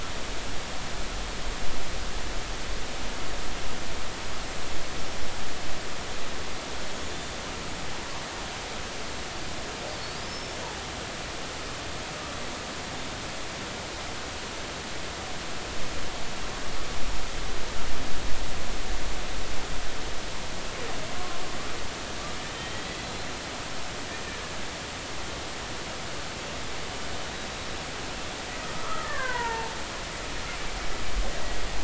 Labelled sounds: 7.1	7.3	killer whale, Bigg's (transient), 6.9 to 7.1 kHz
10.3	10.6	killer whale, Bigg's (transient), 5.2 to 5.5 kHz
22.5	23.3	killer whale, Bigg's (transient), 3.0 to 4.2 kHz
28.7	29.7	killer whale, Bigg's (transient), 0.83 to 2.2 kHz

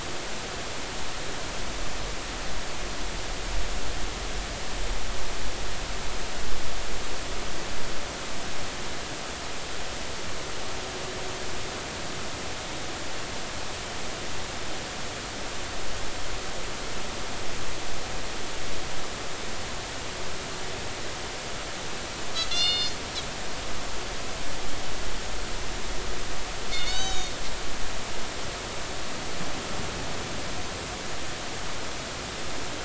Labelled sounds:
22.5	23.0	Pacific white-sided dolphin, 1.3 to 7.9 kHz
26.7	27.3	Pacific white-sided dolphin, 2.1 to 6.9 kHz

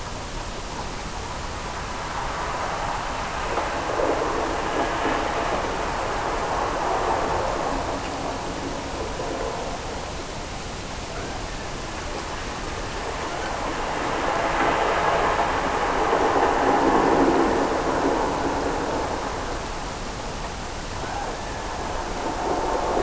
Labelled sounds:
21.0	22.1	killer whale, Bigg's (transient), Gulf of Alaska transient, 0.51 to 1.9 kHz

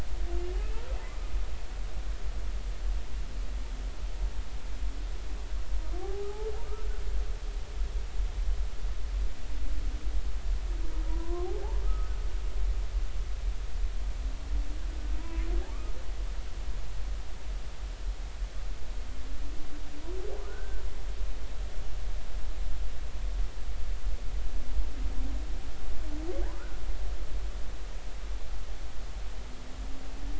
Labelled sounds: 6.0	6.3	humpback whale, 0.80 to 0.86 kHz
11.1	12.1	humpback whale, 0.93 to 1.3 kHz
15.2	15.5	humpback whale, 0.93 to 1.1 kHz
20.5	20.8	humpback whale, 1.4 to 1.6 kHz
26.5	26.8	humpback whale, 1.1 to 1.6 kHz

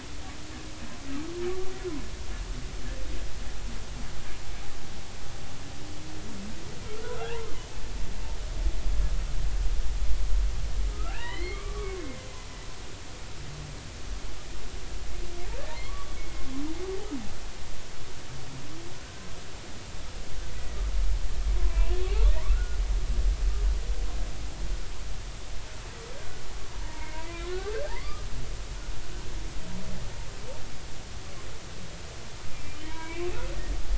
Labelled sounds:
6.8	7.5	humpback whale, 0.80 to 1.5 kHz
10.9	12.0	humpback whale, 1.0 to 4.4 kHz
15.8	16.1	humpback whale, 1.1 to 1.2 kHz
21.5	22.8	humpback whale, 0.93 to 2.9 kHz
26.1	27.5	humpback whale, 0.86 to 2.3 kHz
27.8	28.2	humpback whale, 0.80 to 1.3 kHz
32.5	33.5	humpback whale, 0.86 to 2.7 kHz

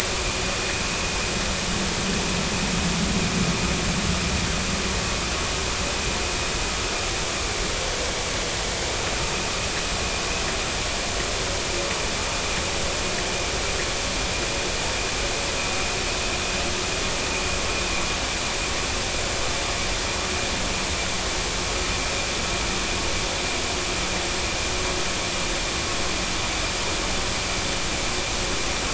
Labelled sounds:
9.2	9.5	vessel noise, 2.4 to 2.6 kHz

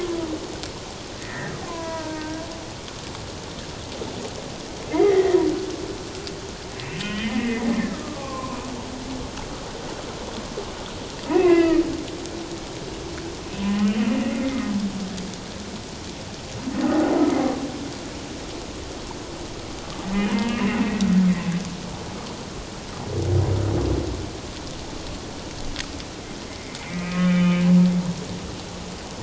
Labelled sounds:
1.2	2.4	humpback whale, 0.91 to 2.1 kHz
4.9	5.4	humpback whale, 1.8 to 2.2 kHz
7.0	8.7	humpback whale, 0.94 to 3.2 kHz
11.3	11.8	humpback whale, 1.2 to 2.8 kHz
13.6	13.9	humpback whale, 0.97 to 2.0 kHz
20.3	20.8	humpback whale, 1.8 to 2.8 kHz
26.8	27.6	humpback whale, 1.2 to 3.6 kHz

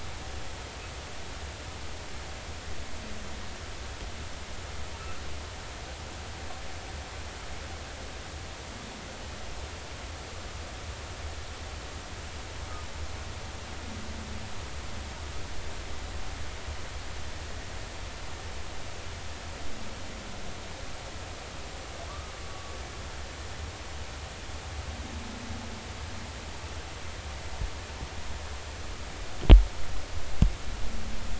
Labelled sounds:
22.1	22.7	humpback whale, 1.1 to 1.3 kHz

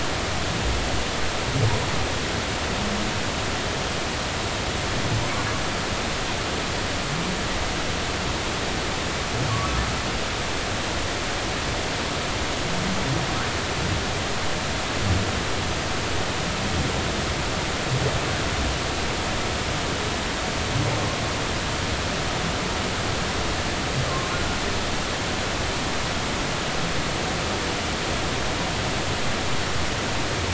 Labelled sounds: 9.5	9.8	humpback whale, 0.96 to 1.3 kHz
24.1	24.3	humpback whale, 0.99 to 1.2 kHz

